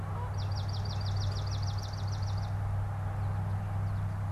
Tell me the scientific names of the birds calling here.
Melospiza georgiana, Spinus tristis